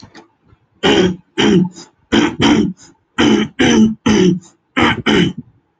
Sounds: Throat clearing